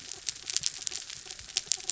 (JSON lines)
{"label": "anthrophony, mechanical", "recorder": "SoundTrap 300"}